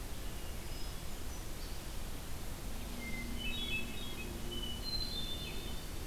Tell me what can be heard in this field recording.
Hermit Thrush, Eastern Wood-Pewee